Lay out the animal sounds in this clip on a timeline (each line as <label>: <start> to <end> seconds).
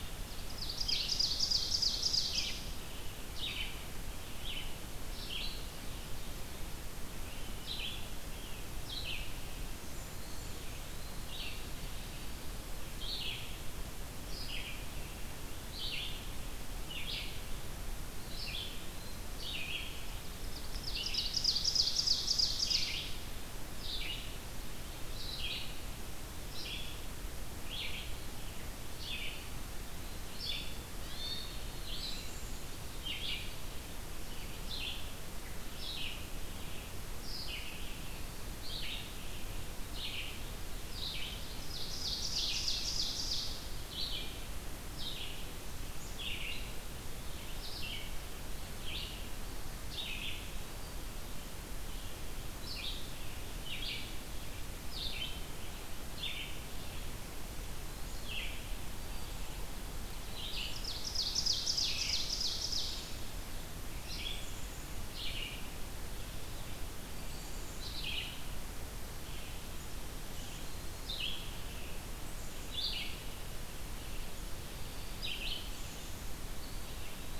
Red-eyed Vireo (Vireo olivaceus): 0.0 to 56.7 seconds
Ovenbird (Seiurus aurocapilla): 0.2 to 2.8 seconds
Blackburnian Warbler (Setophaga fusca): 9.6 to 10.7 seconds
Eastern Wood-Pewee (Contopus virens): 10.1 to 11.4 seconds
Eastern Wood-Pewee (Contopus virens): 18.1 to 19.3 seconds
Ovenbird (Seiurus aurocapilla): 20.2 to 23.0 seconds
Eastern Wood-Pewee (Contopus virens): 29.1 to 30.3 seconds
Hermit Thrush (Catharus guttatus): 30.9 to 31.6 seconds
Black-capped Chickadee (Poecile atricapillus): 31.9 to 32.8 seconds
Ovenbird (Seiurus aurocapilla): 41.7 to 43.7 seconds
Black-capped Chickadee (Poecile atricapillus): 45.9 to 46.3 seconds
Red-eyed Vireo (Vireo olivaceus): 58.0 to 77.4 seconds
Black-capped Chickadee (Poecile atricapillus): 58.0 to 59.5 seconds
Black-throated Green Warbler (Setophaga virens): 58.7 to 59.6 seconds
Ovenbird (Seiurus aurocapilla): 60.5 to 63.3 seconds
Black-capped Chickadee (Poecile atricapillus): 64.2 to 64.9 seconds
Black-capped Chickadee (Poecile atricapillus): 67.2 to 67.9 seconds
Black-capped Chickadee (Poecile atricapillus): 72.2 to 77.4 seconds
Eastern Wood-Pewee (Contopus virens): 76.5 to 77.4 seconds